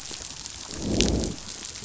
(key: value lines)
label: biophony, growl
recorder: SoundTrap 500